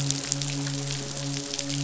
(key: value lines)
label: biophony, midshipman
recorder: SoundTrap 500